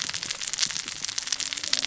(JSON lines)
{"label": "biophony, cascading saw", "recorder": "SoundTrap 600 or HydroMoth"}